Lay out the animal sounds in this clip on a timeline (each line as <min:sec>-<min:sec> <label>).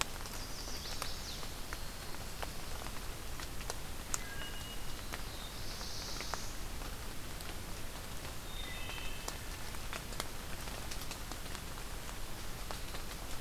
0:00.0-0:01.4 Chestnut-sided Warbler (Setophaga pensylvanica)
0:04.1-0:04.9 Wood Thrush (Hylocichla mustelina)
0:04.7-0:06.6 Black-throated Blue Warbler (Setophaga caerulescens)
0:08.5-0:09.1 Wood Thrush (Hylocichla mustelina)